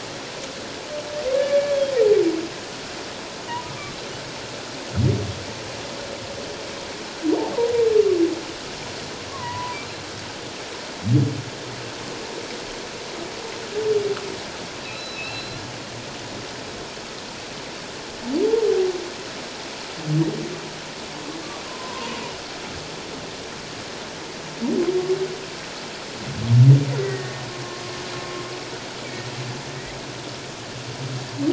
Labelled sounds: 1.4	1.7	humpback whale, 1.7 to 2.3 kHz
3.7	4.0	humpback whale, 1.1 to 1.2 kHz
9.3	9.8	humpback whale, 0.91 to 2.1 kHz
14.8	15.6	humpback whale, 2.3 to 4.2 kHz
21.7	22.2	humpback whale, 0.88 to 1.1 kHz
27.0	27.4	humpback whale, 1.8 to 2.0 kHz

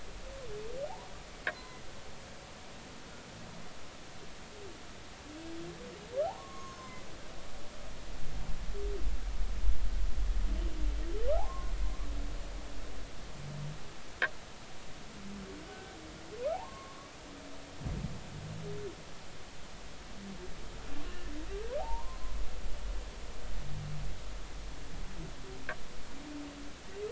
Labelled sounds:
1.5	1.8	humpback whale, 0.96 to 2.1 kHz
6.2	7.1	humpback whale, 0.80 to 6.6 kHz
11.3	11.7	humpback whale, 0.80 to 1.2 kHz
15.7	16.0	humpback whale, 1.5 to 1.6 kHz
16.5	17.0	humpback whale, 0.80 to 1.2 kHz
21.8	22.3	humpback whale, 0.80 to 1.1 kHz

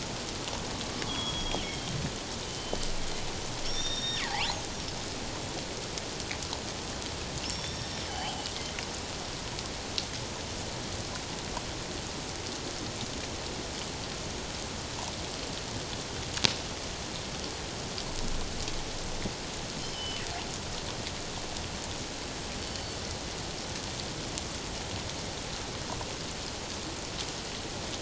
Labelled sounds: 1.1	1.9	killer whale, northern resident, G clan, 2.9 to 6.7 kHz
2.5	4.6	killer whale, northern resident, G clan, 0.78 to 5.8 kHz
7.4	8.5	killer whale, northern resident, G clan, 2.8 to 5.6 kHz
19.9	20.2	killer whale, northern resident, G clan, 2.9 to 3.2 kHz
22.6	23.0	killer whale, northern resident, G clan, 4.4 to 4.6 kHz

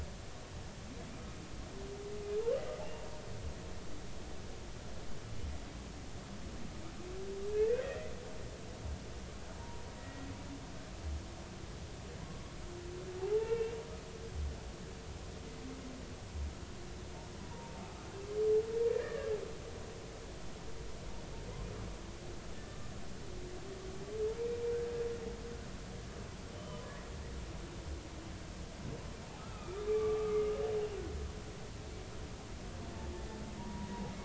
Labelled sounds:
7.5	8.0	humpback whale, 1.6 to 2.1 kHz
9.6	10.3	humpback whale, 0.90 to 2.0 kHz
13.2	13.8	humpback whale, 0.80 to 2.8 kHz
18.9	19.3	humpback whale, 1.5 to 1.9 kHz
22.6	22.9	humpback whale, 1.15 to 1.25 kHz
26.5	26.8	humpback whale, 1.1 to 3.1 kHz
29.4	30.5	humpback whale, 1.1 to 2.6 kHz
33.6	33.9	humpback whale, 0.90 to 1.0 kHz

